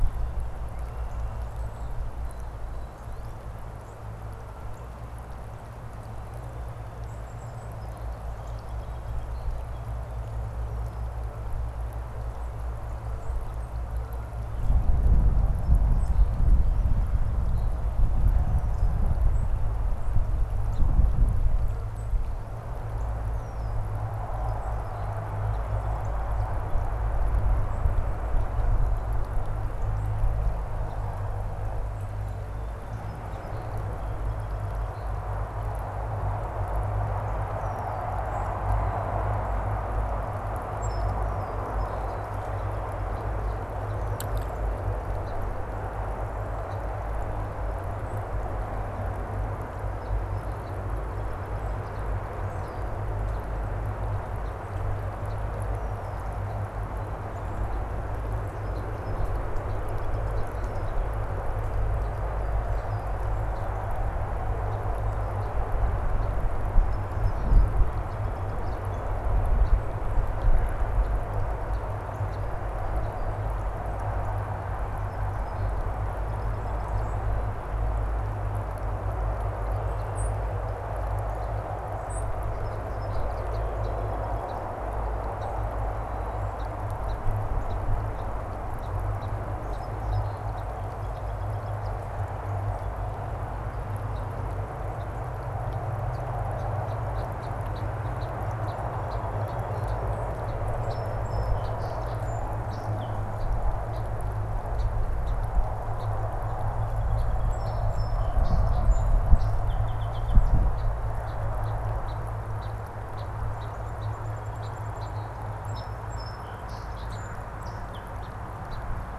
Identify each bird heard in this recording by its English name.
Song Sparrow, Red-winged Blackbird, unidentified bird